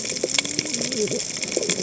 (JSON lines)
{"label": "biophony, cascading saw", "recorder": "HydroMoth"}